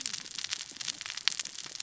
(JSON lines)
{"label": "biophony, cascading saw", "recorder": "SoundTrap 600 or HydroMoth"}